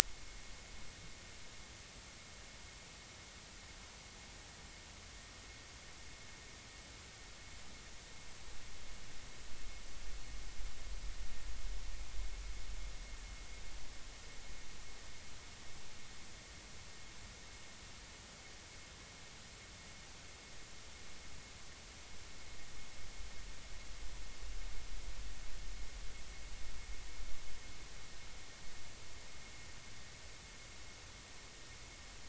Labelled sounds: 0.0	0.5	vessel noise, 2.1 to 2.3 kHz

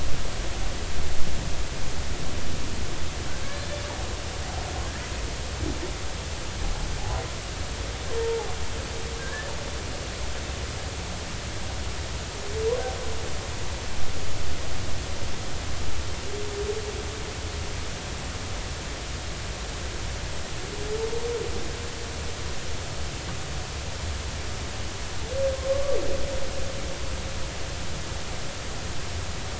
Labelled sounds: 8.2	8.5	humpback whale, 0.80 to 0.96 kHz
9.2	9.5	humpback whale, 1.5 to 1.8 kHz

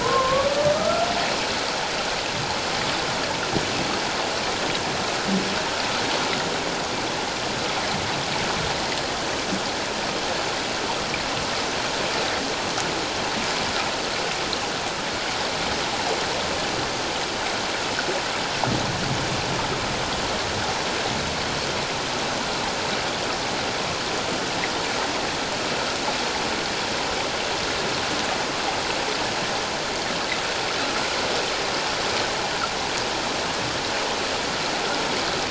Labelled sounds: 0.0	1.1	humpback whale, 0.94 to 1.4 kHz

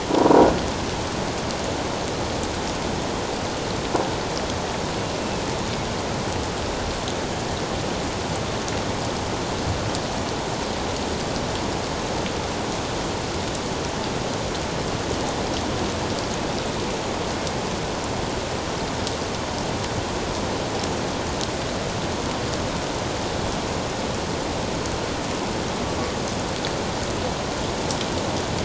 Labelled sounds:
0.1	0.5	humpback whale, 0.91 to 1.0 kHz

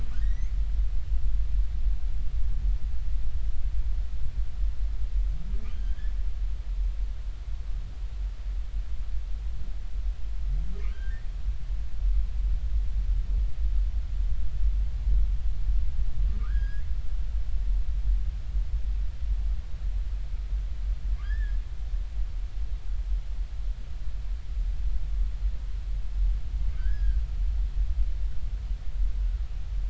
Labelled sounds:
0.1	0.5	humpback whale, 1.4 to 6.5 kHz
5.7	6.1	humpback whale, 1.5 to 8.0 kHz
10.9	11.3	humpback whale, 1.4 to 2.0 kHz
16.3	16.8	humpback whale, 1.1 to 5.0 kHz
21.2	21.6	humpback whale, 1.4 to 1.9 kHz
26.8	27.2	humpback whale, 1.4 to 1.8 kHz

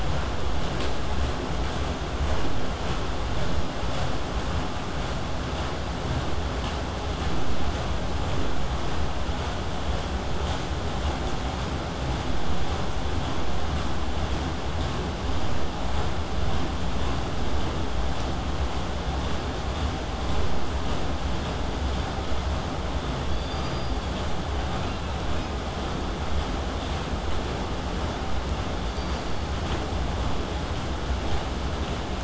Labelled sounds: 12.2	17.3	vessel noise, 0 to 8.0 kHz
23.2	24.3	killer whale, southern resident, K pod, call S16, 3.2 to 6.1 kHz
24.8	25.6	killer whale, southern resident, 2.2 to 4.3 kHz
28.9	29.5	killer whale, southern resident, K pod, call S16, 4.2 to 6.0 kHz

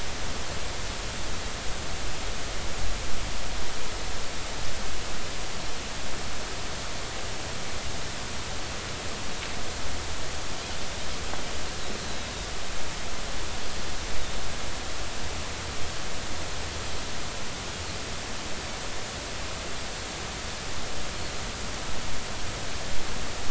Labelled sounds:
12.0	12.2	Pacific white-sided dolphin, 3.9 to 4.3 kHz

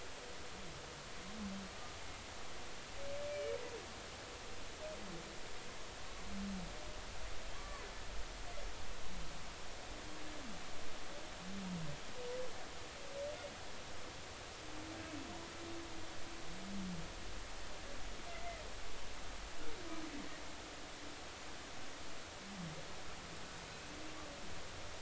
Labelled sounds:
3.3	3.6	humpback whale, 2.2 to 2.4 kHz
7.5	7.9	humpback whale, 0.99 to 1.2 kHz
18.3	18.6	humpback whale, 2.0 to 2.1 kHz

